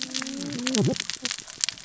{"label": "biophony, cascading saw", "recorder": "SoundTrap 600 or HydroMoth"}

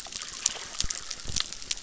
{"label": "biophony, chorus", "recorder": "SoundTrap 600"}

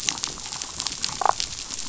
{"label": "biophony, damselfish", "recorder": "SoundTrap 500"}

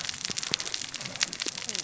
{"label": "biophony, cascading saw", "recorder": "SoundTrap 600 or HydroMoth"}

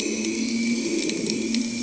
{"label": "anthrophony, boat engine", "recorder": "HydroMoth"}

